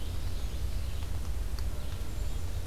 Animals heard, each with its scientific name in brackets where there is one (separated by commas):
Red-eyed Vireo (Vireo olivaceus), Common Yellowthroat (Geothlypis trichas), Black-capped Chickadee (Poecile atricapillus), Ovenbird (Seiurus aurocapilla)